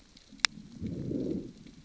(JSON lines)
{"label": "biophony, growl", "recorder": "SoundTrap 600 or HydroMoth"}